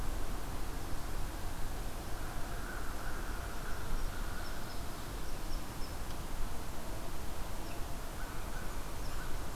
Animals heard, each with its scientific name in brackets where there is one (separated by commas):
American Crow (Corvus brachyrhynchos), unknown mammal